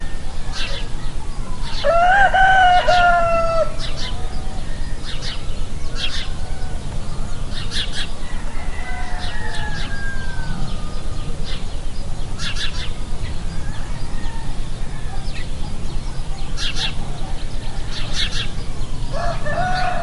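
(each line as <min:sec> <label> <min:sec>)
0:00.0 Birds chirping in the distance. 0:20.0
0:01.7 A rooster crows loudly and continuously in a field. 0:03.9
0:19.0 A rooster crows loudly. 0:20.0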